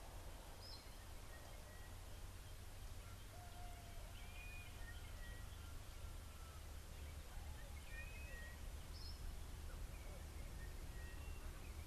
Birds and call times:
Blue-naped Mousebird (Urocolius macrourus): 0:04.3
Sulphur-breasted Bushshrike (Telophorus sulfureopectus): 0:05.3, 0:08.3
Meyer's Parrot (Poicephalus meyeri): 0:08.9

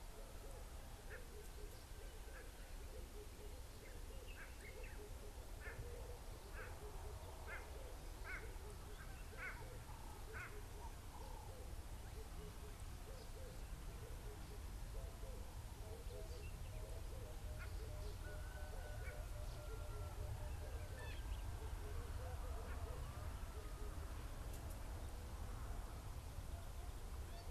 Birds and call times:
Red-eyed Dove (Streptopelia semitorquata): 0:03.2, 0:16.9
White-bellied Go-away-bird (Corythaixoides leucogaster): 0:07.5

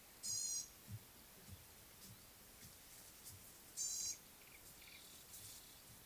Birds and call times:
Gray-backed Camaroptera (Camaroptera brevicaudata): 0:03.9
Yellow-breasted Apalis (Apalis flavida): 0:04.5

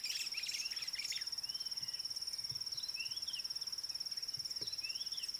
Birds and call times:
White-browed Sparrow-Weaver (Plocepasser mahali): 0:00.1
Red-backed Scrub-Robin (Cercotrichas leucophrys): 0:03.1

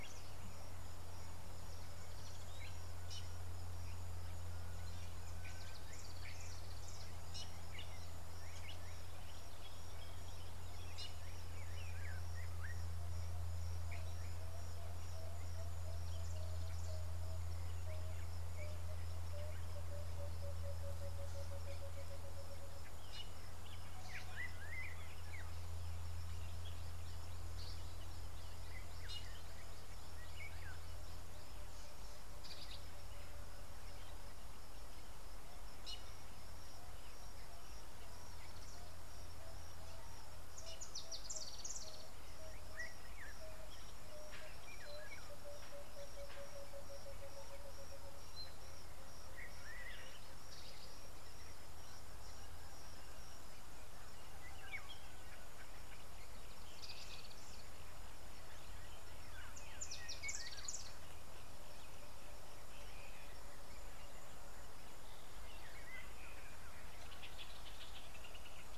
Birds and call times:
Emerald-spotted Wood-Dove (Turtur chalcospilos): 0:20.7, 0:44.3
Variable Sunbird (Cinnyris venustus): 0:41.4

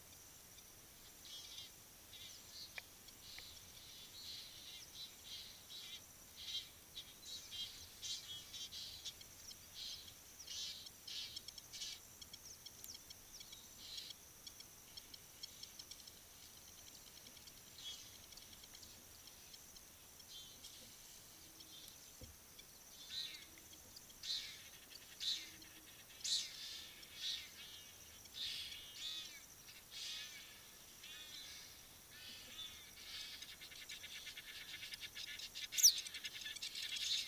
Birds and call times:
Egyptian Goose (Alopochen aegyptiaca): 0:06.5, 0:26.3, 0:34.9
Blacksmith Lapwing (Vanellus armatus): 0:12.9, 0:17.0

